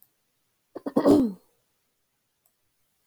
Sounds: Throat clearing